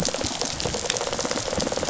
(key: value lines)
label: biophony, rattle response
recorder: SoundTrap 500